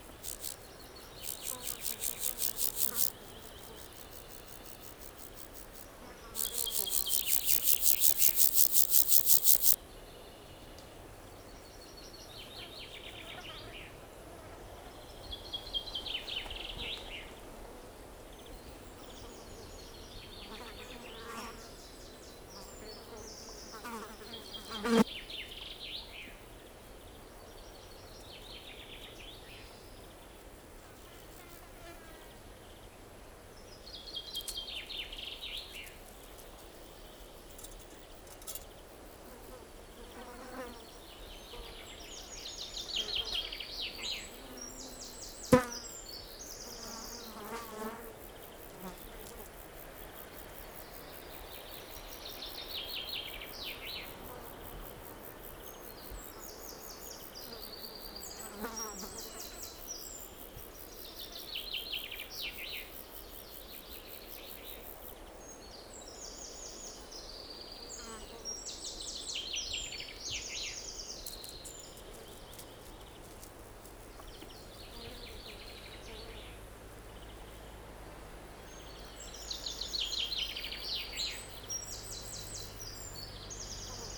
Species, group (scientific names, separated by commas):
Chorthippus vagans, Orthoptera